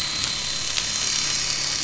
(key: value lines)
label: anthrophony, boat engine
recorder: SoundTrap 500